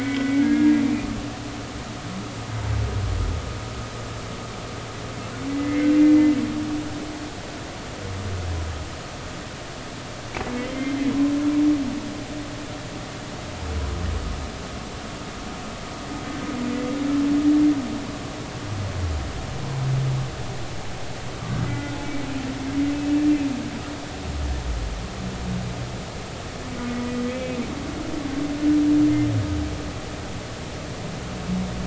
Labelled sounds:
5.5	5.9	humpback whale, 2.0 to 2.2 kHz
10.6	11.1	humpback whale, 1.9 to 3.2 kHz
21.7	22.0	humpback whale, 1.4 to 2.1 kHz
27.3	27.6	humpback whale, 2.2 to 2.6 kHz

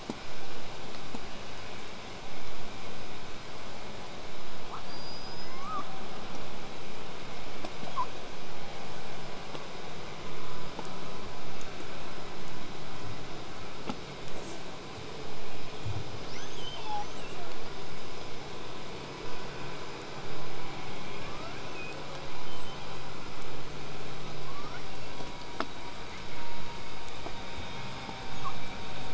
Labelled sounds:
4.6	5.9	killer whale, southern resident, L pod, call S19, 0.53 to 8.0 kHz
7.8	8.1	killer whale, southern resident, 0.26 to 1.7 kHz
14.3	14.6	killer whale, southern resident, J pod, call S05, 0.21 to 8.0 kHz
16.3	17.5	killer whale, southern resident, 0.57 to 8.0 kHz
21.1	22.2	killer whale, southern resident, L pod, call S02iii, 0.41 to 8.0 kHz
22.5	22.8	killer whale, southern resident, 2.9 to 8.0 kHz
24.2	25.6	killer whale, southern resident, L pod, call S02iii, 0.73 to 6.7 kHz
25.6	29.1	killer whale, southern resident, 0.34 to 8.0 kHz

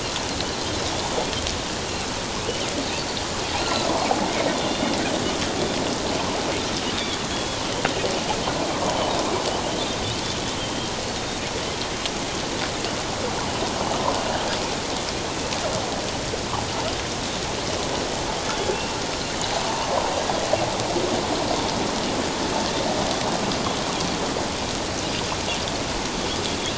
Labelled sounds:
0.9	1.2	Pacific white-sided dolphin, 3.3 to 3.6 kHz
3.6	3.9	Pacific white-sided dolphin, 1.2 to 1.5 kHz
4.5	5.0	Pacific white-sided dolphin, 2.8 to 3.6 kHz
6.9	7.6	Pacific white-sided dolphin, 3.2 to 3.8 kHz
10.6	10.9	Pacific white-sided dolphin, 3.1 to 3.2 kHz
25.1	25.3	Pacific white-sided dolphin, 4.8 to 4.9 kHz

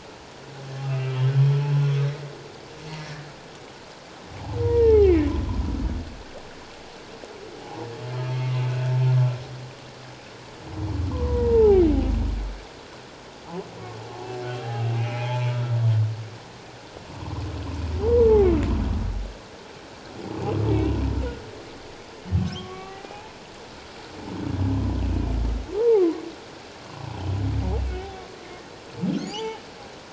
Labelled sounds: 1.2	1.5	humpback whale, 1.6 to 1.9 kHz
3.0	3.3	humpback whale, 1.6 to 1.8 kHz
4.6	5.3	humpback whale, 0.78 to 3.1 kHz
7.6	7.9	humpback whale, 0.78 to 0.97 kHz
11.1	11.8	humpback whale, 0.78 to 1.2 kHz
14.4	15.5	humpback whale, 0.78 to 3.3 kHz
18.0	18.3	humpback whale, 0.78 to 1.2 kHz
22.4	23.4	humpback whale, 0.78 to 2.3 kHz
25.8	26.2	humpback whale, 0.78 to 1.3 kHz
27.8	28.0	humpback whale, 2.6 to 2.7 kHz
29.2	29.6	humpback whale, 0.78 to 7.1 kHz

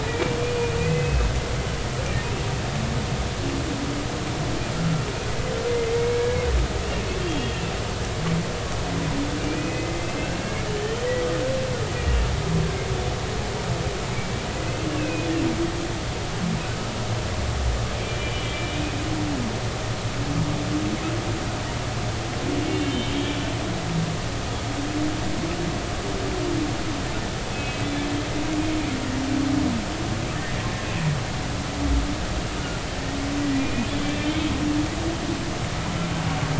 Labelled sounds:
0.0	1.3	humpback whale, 1.9 to 2.6 kHz
4.7	6.1	humpback whale, 1.3 to 2.2 kHz
9.4	11.0	humpback whale, 2.0 to 3.1 kHz
14.6	15.3	humpback whale, 2.0 to 2.7 kHz
18.0	18.7	humpback whale, 2.3 to 2.4 kHz
22.7	23.1	humpback whale, 2.7 to 3.2 kHz
27.5	27.8	humpback whale, 2.5 to 2.6 kHz
33.5	34.5	humpback whale, 2.4 to 3.6 kHz

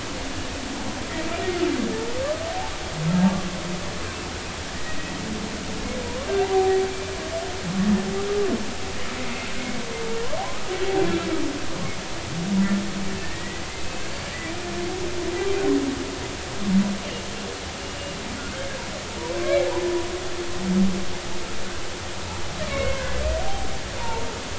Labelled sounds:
4.0	4.3	humpback whale, 2.6 to 2.7 kHz
6.0	6.8	humpback whale, 0.80 to 1.2 kHz
9.2	9.5	humpback whale, 2.0 to 2.2 kHz
13.2	13.6	humpback whale, 1.7 to 2.0 kHz
22.6	23.1	humpback whale, 0.99 to 2.4 kHz
23.4	23.7	humpback whale, 0.80 to 0.90 kHz
24.0	24.3	humpback whale, 0.83 to 0.99 kHz

